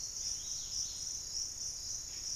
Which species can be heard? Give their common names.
Dusky-capped Greenlet